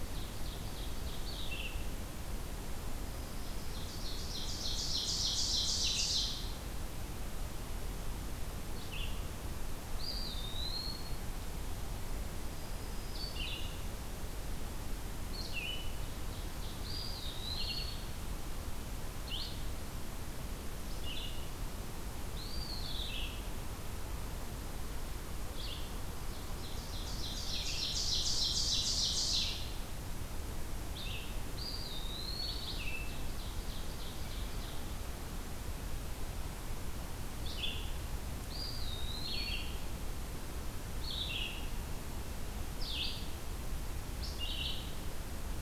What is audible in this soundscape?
Ovenbird, Red-eyed Vireo, Black-throated Green Warbler, Eastern Wood-Pewee